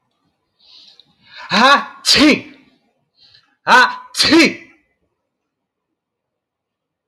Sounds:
Sneeze